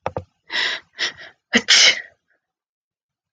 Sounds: Sneeze